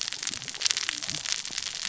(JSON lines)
{"label": "biophony, cascading saw", "recorder": "SoundTrap 600 or HydroMoth"}